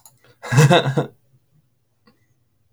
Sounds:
Laughter